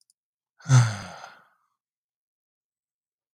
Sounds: Sigh